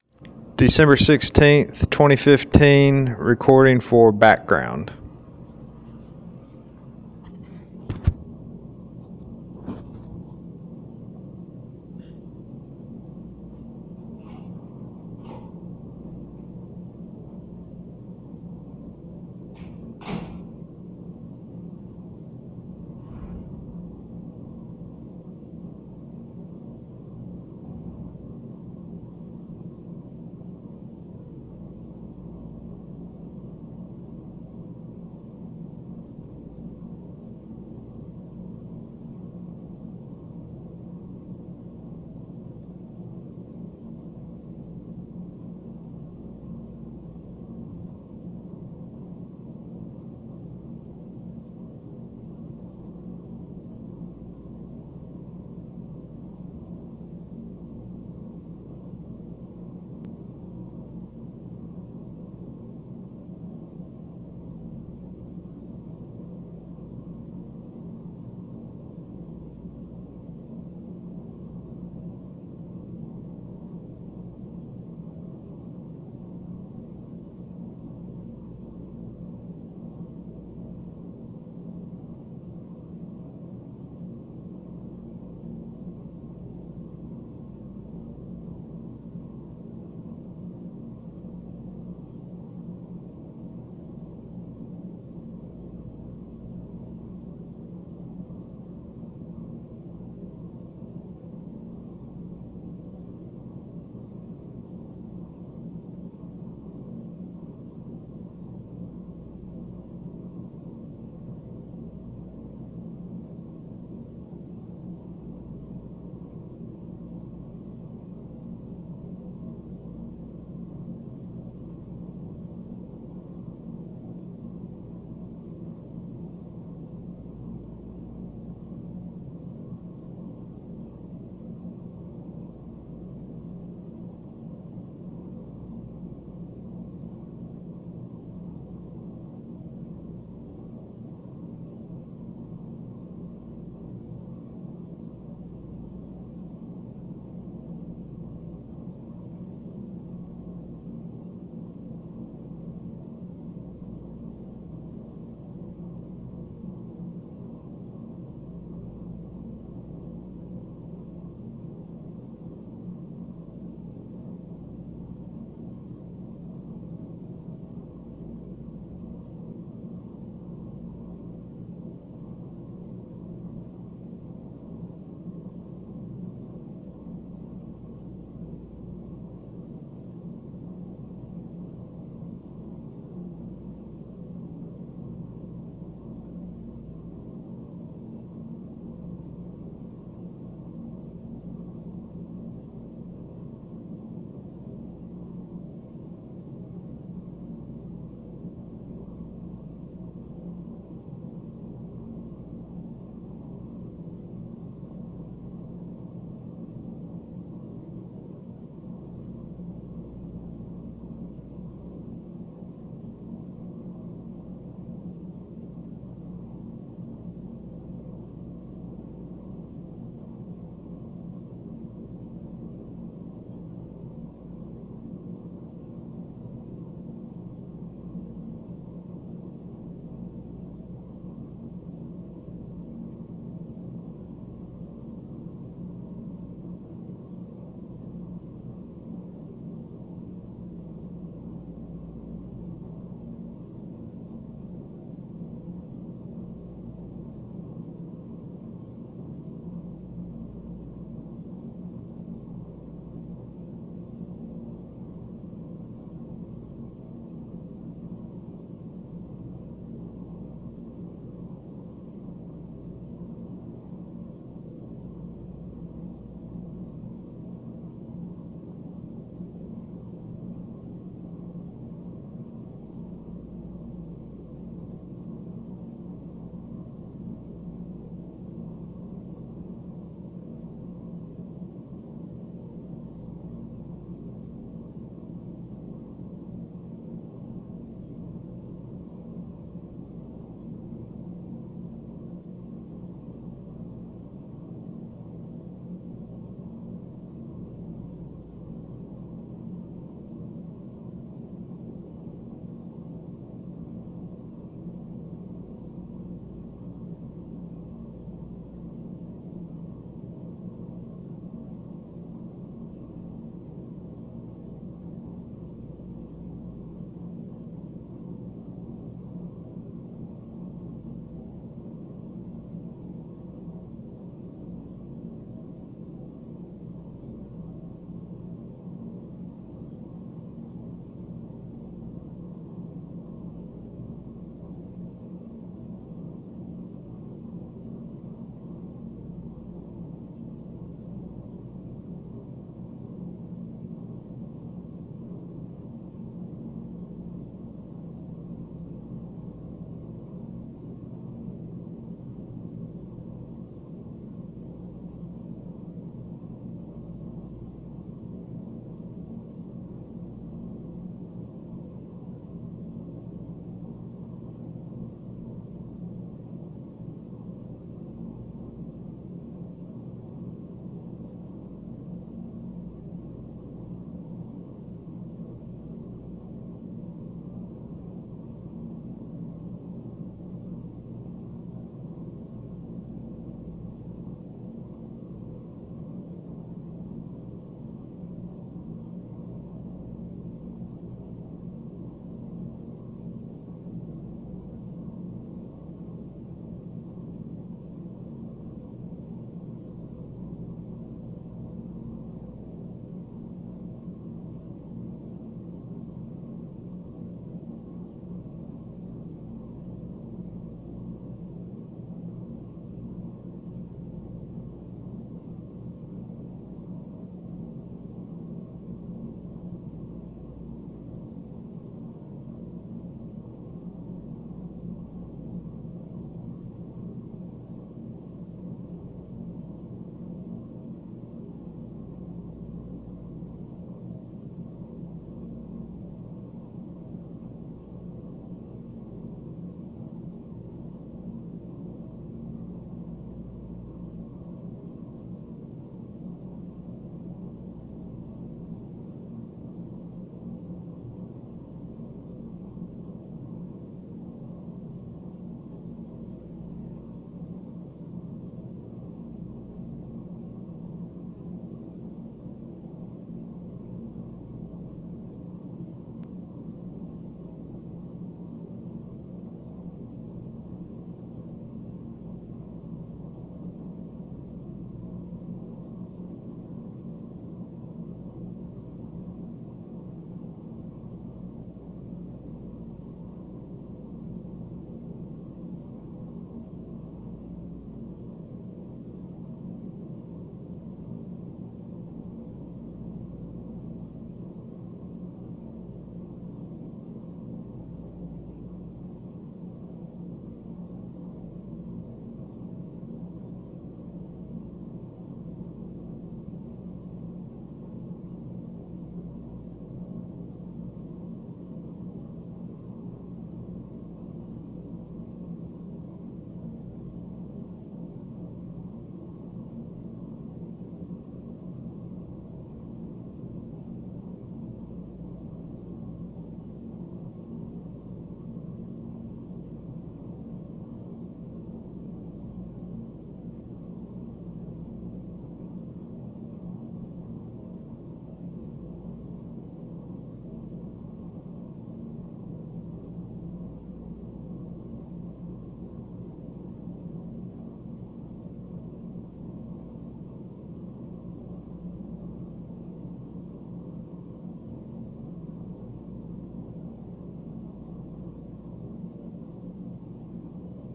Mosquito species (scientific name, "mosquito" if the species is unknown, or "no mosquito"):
no mosquito